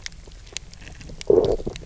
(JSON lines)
{"label": "biophony, low growl", "recorder": "SoundTrap 300"}